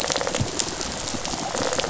{"label": "biophony, rattle response", "recorder": "SoundTrap 500"}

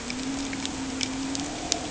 {"label": "anthrophony, boat engine", "recorder": "HydroMoth"}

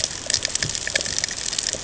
{"label": "ambient", "recorder": "HydroMoth"}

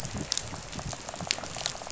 {"label": "biophony, rattle", "recorder": "SoundTrap 500"}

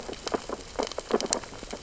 {"label": "biophony, sea urchins (Echinidae)", "recorder": "SoundTrap 600 or HydroMoth"}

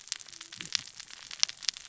{"label": "biophony, cascading saw", "recorder": "SoundTrap 600 or HydroMoth"}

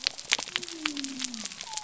{"label": "biophony", "recorder": "SoundTrap 300"}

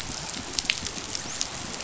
{"label": "biophony, dolphin", "recorder": "SoundTrap 500"}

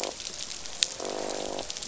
{"label": "biophony, croak", "recorder": "SoundTrap 500"}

